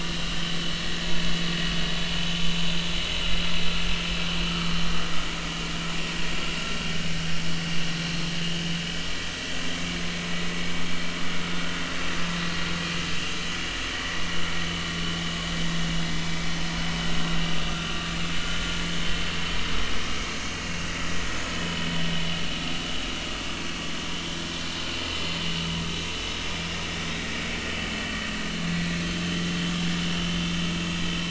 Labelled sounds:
0.6	0.8	vessel noise, 4.2 to 4.4 kHz
4.4	4.8	vessel noise, 1.1 to 1.3 kHz
8.0	8.3	vessel noise, 4.0 to 4.3 kHz
17.8	18.1	vessel noise, 1.1 to 1.3 kHz
20.1	20.4	vessel noise, 2.1 to 2.3 kHz
21.5	21.9	vessel noise, 2.9 to 3.1 kHz
24.4	24.7	vessel noise, 1.1 to 1.2 kHz
29.0	30.3	vessel noise, 2.7 to 3.3 kHz

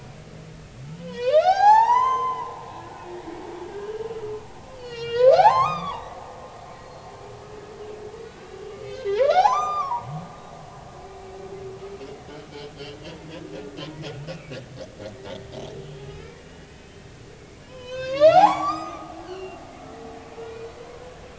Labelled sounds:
0.9	2.6	humpback whale, 0.80 to 7.6 kHz
3.7	3.9	humpback whale, 1.5 to 1.7 kHz
4.7	6.1	humpback whale, 0.80 to 7.8 kHz
6.8	7.1	humpback whale, 4.1 to 4.4 kHz
8.2	10.1	humpback whale, 0.80 to 7.4 kHz
12.0	12.4	humpback whale, 2.5 to 3.1 kHz
14.2	14.5	humpback whale, 2.2 to 2.8 kHz
16.1	16.9	humpback whale, 1.2 to 3.1 kHz
17.7	19.6	humpback whale, 0.80 to 7.6 kHz
20.5	20.8	humpback whale, 4.38 to 4.45 kHz

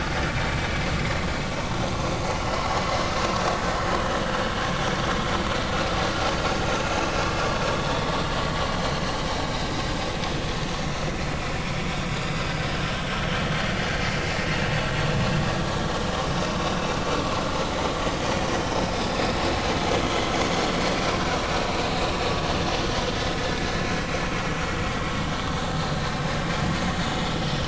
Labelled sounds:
1.9	2.2	vessel noise, 0.99 to 1.2 kHz
8.8	9.0	vessel noise, 3.9 to 4.2 kHz
12.2	12.5	vessel noise, 4.8 to 5.1 kHz

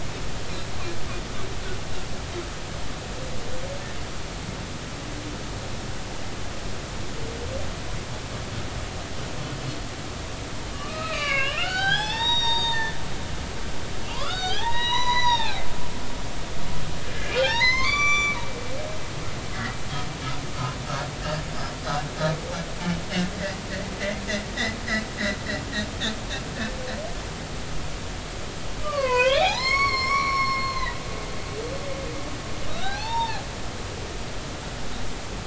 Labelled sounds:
10.7	13.0	humpback whale, 0.80 to 6.6 kHz
14.1	15.6	humpback whale, 0.80 to 6.0 kHz
17.1	18.4	humpback whale, 0.80 to 8.0 kHz
28.8	30.9	humpback whale, 0.80 to 6.7 kHz
32.7	33.4	humpback whale, 0.80 to 5.6 kHz

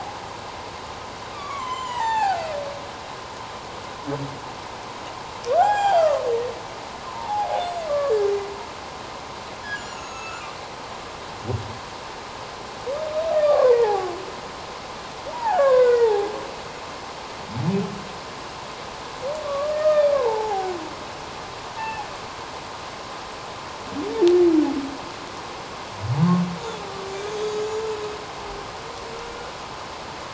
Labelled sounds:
1.3	2.5	humpback whale, 0.78 to 7.4 kHz
5.6	6.2	humpback whale, 0.78 to 7.5 kHz
7.1	7.5	humpback whale, 0.78 to 1.1 kHz
7.9	8.3	humpback whale, 1.1 to 1.8 kHz
9.7	10.4	humpback whale, 1.2 to 7.4 kHz
13.4	14.1	humpback whale, 0.78 to 2.1 kHz
15.3	16.3	humpback whale, 0.78 to 2.5 kHz
19.4	20.7	humpback whale, 0.78 to 2.5 kHz
21.8	22.0	humpback whale, 1.7 to 2.7 kHz
27.3	27.8	humpback whale, 3.2 to 7.0 kHz

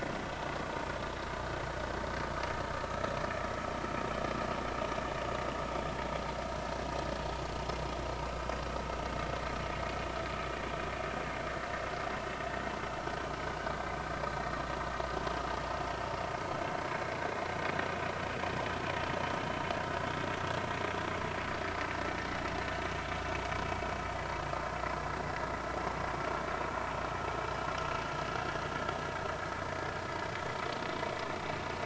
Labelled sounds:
2.9	3.1	vessel noise, 1.2 to 1.4 kHz

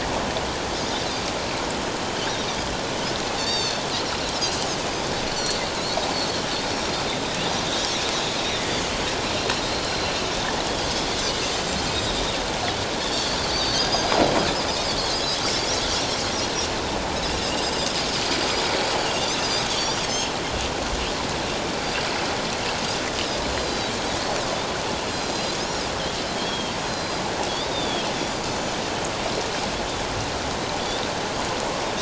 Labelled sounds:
3.4	3.8	Pacific white-sided dolphin, 2.5 to 5.7 kHz
5.3	5.6	Pacific white-sided dolphin, 4.2 to 4.6 kHz
8.1	8.4	Pacific white-sided dolphin, 6.6 to 6.8 kHz
9.8	10.1	Pacific white-sided dolphin, 4.0 to 4.2 kHz
11.1	11.4	Pacific white-sided dolphin, 5.9 to 6.2 kHz
13.5	14.2	Pacific white-sided dolphin, 4.2 to 6.2 kHz
15.9	16.2	Pacific white-sided dolphin, 5.4 to 5.9 kHz
17.6	17.9	Pacific white-sided dolphin, 4.7 to 5.2 kHz
19.7	20.3	Pacific white-sided dolphin, 3.2 to 6.0 kHz
23.5	23.9	Pacific white-sided dolphin, 3.8 to 7.4 kHz
25.1	25.6	Pacific white-sided dolphin, 4.0 to 7.4 kHz
26.4	27.2	Pacific white-sided dolphin, 3.1 to 5.9 kHz
27.5	28.8	Pacific white-sided dolphin, 3.1 to 7.0 kHz

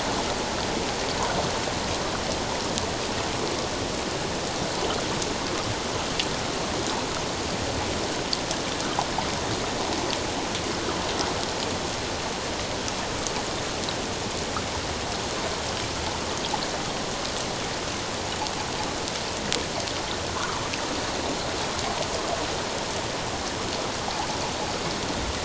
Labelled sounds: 20.4	20.6	water noise, 0.88 to 1.5 kHz

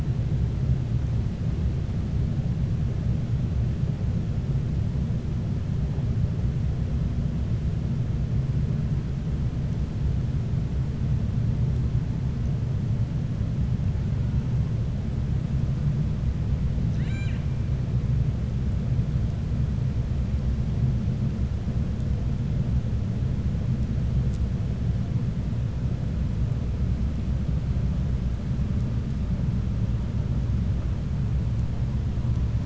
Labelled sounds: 16.8	17.5	killer whale, 1.5 to 7.9 kHz

